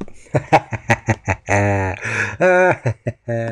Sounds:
Laughter